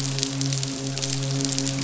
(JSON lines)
{"label": "biophony, midshipman", "recorder": "SoundTrap 500"}